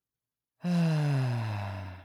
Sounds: Sigh